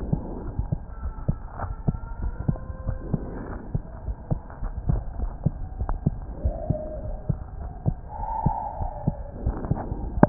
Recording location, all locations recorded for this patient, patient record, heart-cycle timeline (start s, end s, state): aortic valve (AV)
aortic valve (AV)+pulmonary valve (PV)+tricuspid valve (TV)+mitral valve (MV)
#Age: Child
#Sex: Male
#Height: 129.0 cm
#Weight: 25.0 kg
#Pregnancy status: False
#Murmur: Absent
#Murmur locations: nan
#Most audible location: nan
#Systolic murmur timing: nan
#Systolic murmur shape: nan
#Systolic murmur grading: nan
#Systolic murmur pitch: nan
#Systolic murmur quality: nan
#Diastolic murmur timing: nan
#Diastolic murmur shape: nan
#Diastolic murmur grading: nan
#Diastolic murmur pitch: nan
#Diastolic murmur quality: nan
#Outcome: Normal
#Campaign: 2015 screening campaign
0.00	0.99	unannotated
0.99	1.14	S1
1.14	1.24	systole
1.24	1.36	S2
1.36	1.62	diastole
1.62	1.76	S1
1.76	1.86	systole
1.86	1.98	S2
1.98	2.20	diastole
2.20	2.36	S1
2.36	2.46	systole
2.46	2.60	S2
2.60	2.84	diastole
2.84	3.00	S1
3.00	3.12	systole
3.12	3.22	S2
3.22	3.45	diastole
3.45	3.59	S1
3.59	3.70	systole
3.70	3.82	S2
3.82	4.04	diastole
4.04	4.16	S1
4.16	4.29	systole
4.29	4.40	S2
4.40	4.60	diastole
4.60	4.74	S1
4.74	4.86	systole
4.86	5.00	S2
5.00	5.18	diastole
5.18	5.34	S1
5.34	5.44	systole
5.44	5.54	S2
5.54	5.78	diastole
5.78	5.87	S1
5.87	6.04	systole
6.04	6.20	S2
6.20	6.42	diastole
6.42	6.55	S1
6.55	6.68	systole
6.68	6.78	S2
6.78	7.02	diastole
7.02	7.17	S1
7.17	7.28	systole
7.28	7.40	S2
7.40	7.58	diastole
7.58	7.72	S1
7.72	10.29	unannotated